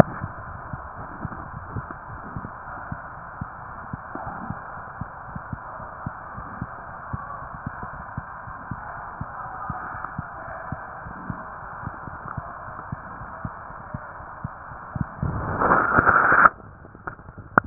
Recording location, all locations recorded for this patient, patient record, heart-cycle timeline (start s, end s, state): pulmonary valve (PV)
aortic valve (AV)+pulmonary valve (PV)
#Age: Infant
#Sex: Female
#Height: 65.0 cm
#Weight: 6.4 kg
#Pregnancy status: False
#Murmur: Unknown
#Murmur locations: nan
#Most audible location: nan
#Systolic murmur timing: nan
#Systolic murmur shape: nan
#Systolic murmur grading: nan
#Systolic murmur pitch: nan
#Systolic murmur quality: nan
#Diastolic murmur timing: nan
#Diastolic murmur shape: nan
#Diastolic murmur grading: nan
#Diastolic murmur pitch: nan
#Diastolic murmur quality: nan
#Outcome: Abnormal
#Campaign: 2015 screening campaign
0.00	0.46	unannotated
0.46	0.62	S1
0.62	0.72	systole
0.72	0.82	S2
0.82	0.98	diastole
0.98	1.08	S1
1.08	1.22	systole
1.22	1.32	S2
1.32	1.48	diastole
1.48	1.64	S1
1.64	1.72	systole
1.72	1.88	S2
1.88	2.08	diastole
2.08	2.22	S1
2.22	2.34	systole
2.34	2.50	S2
2.50	2.65	diastole
2.65	2.78	S1
2.78	2.88	systole
2.88	3.00	S2
3.00	3.14	diastole
3.14	3.24	S1
3.24	3.38	systole
3.38	3.50	S2
3.50	3.65	diastole
3.65	3.78	S1
3.78	3.89	systole
3.89	4.04	S2
4.04	4.22	diastole
4.22	4.36	S1
4.36	4.48	systole
4.48	4.60	S2
4.60	4.70	diastole
4.70	4.84	S1
4.84	17.66	unannotated